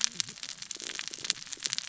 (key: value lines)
label: biophony, cascading saw
recorder: SoundTrap 600 or HydroMoth